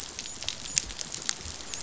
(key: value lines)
label: biophony, dolphin
recorder: SoundTrap 500